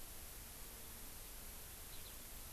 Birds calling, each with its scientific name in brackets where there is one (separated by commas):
Eurasian Skylark (Alauda arvensis)